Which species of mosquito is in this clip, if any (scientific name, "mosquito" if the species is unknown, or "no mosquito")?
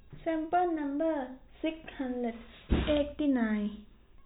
no mosquito